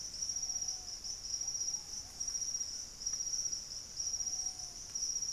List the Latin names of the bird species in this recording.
Patagioenas subvinacea, Nystalus obamai